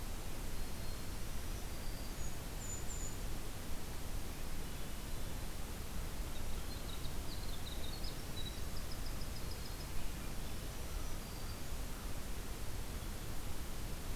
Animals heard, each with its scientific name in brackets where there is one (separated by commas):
Winter Wren (Troglodytes hiemalis), Swainson's Thrush (Catharus ustulatus), Golden-crowned Kinglet (Regulus satrapa), Black-throated Green Warbler (Setophaga virens), American Crow (Corvus brachyrhynchos)